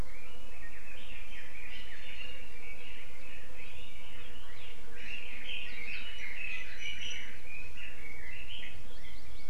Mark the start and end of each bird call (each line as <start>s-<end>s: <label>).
0.0s-9.5s: Red-billed Leiothrix (Leiothrix lutea)
1.9s-2.4s: Iiwi (Drepanis coccinea)
6.7s-7.3s: Iiwi (Drepanis coccinea)
8.7s-9.5s: Hawaii Amakihi (Chlorodrepanis virens)